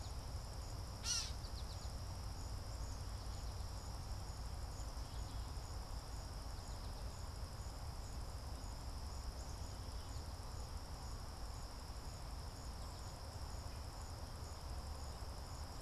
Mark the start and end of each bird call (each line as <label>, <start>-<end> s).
Gray Catbird (Dumetella carolinensis), 0.0-1.4 s
American Goldfinch (Spinus tristis), 0.0-10.9 s